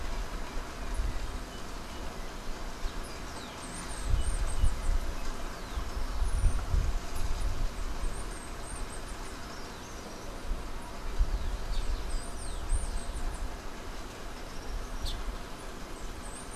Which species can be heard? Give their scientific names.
Icterus chrysater, Coereba flaveola, Ramphocelus carbo